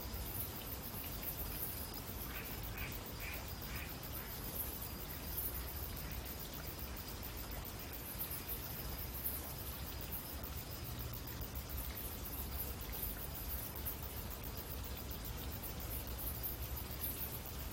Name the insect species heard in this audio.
Caedicia simplex